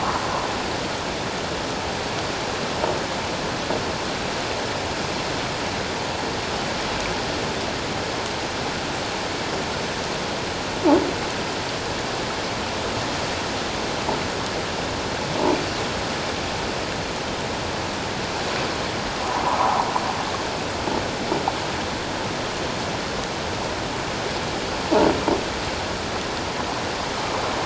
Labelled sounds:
19.6	19.9	water noise, 0.78 to 1.2 kHz

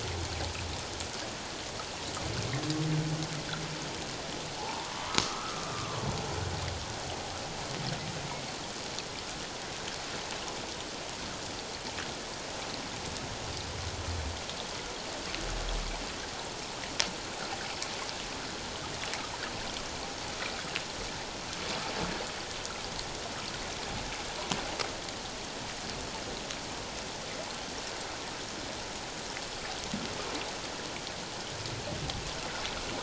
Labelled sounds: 4.6	6.0	humpback whale, 0.78 to 1.4 kHz

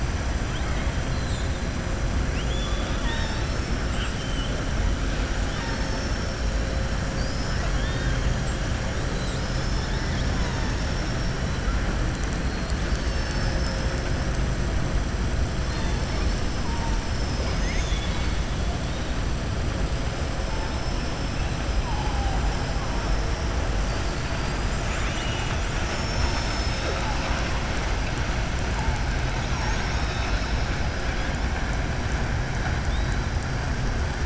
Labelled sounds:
1.0	1.6	killer whale, southern resident, 3.2 to 4.5 kHz
2.2	3.8	killer whale, southern resident, 0.91 to 6.4 kHz
7.5	8.2	killer whale, southern resident, 1.1 to 4.6 kHz
23.8	25.6	killer whale, southern resident, 1.2 to 5.0 kHz

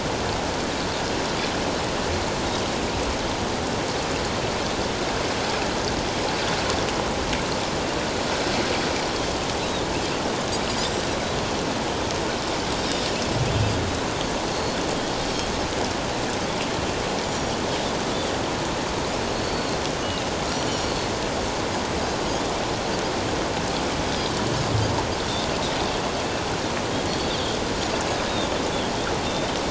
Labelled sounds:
10.8	11.1	Pacific white-sided dolphin, 7.3 to 7.9 kHz
14.5	14.8	Pacific white-sided dolphin, 4.2 to 4.4 kHz
17.3	17.6	Pacific white-sided dolphin, 5.6 to 7.0 kHz
19.3	20.3	Pacific white-sided dolphin, 2.6 to 4.5 kHz
20.5	20.9	Pacific white-sided dolphin, 5.5 to 7.2 kHz
22.3	22.5	Pacific white-sided dolphin, 3.2 to 3.6 kHz
27.1	27.3	Pacific white-sided dolphin, 4.3 to 4.6 kHz
28.3	28.6	Pacific white-sided dolphin, 3.4 to 3.8 kHz

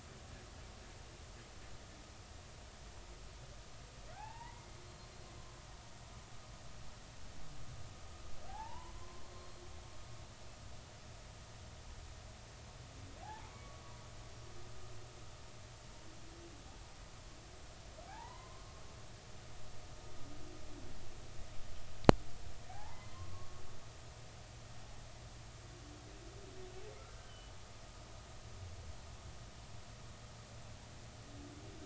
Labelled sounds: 4.1	5.1	humpback whale, 0.80 to 4.3 kHz
8.5	9.2	humpback whale, 0.80 to 1.1 kHz
13.2	13.8	humpback whale, 0.80 to 1.2 kHz
18.1	18.7	humpback whale, 0.80 to 2.1 kHz
22.7	23.6	humpback whale, 0.80 to 2.1 kHz
27.1	27.5	humpback whale, 1.4 to 3.1 kHz

